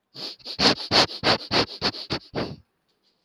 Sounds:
Sniff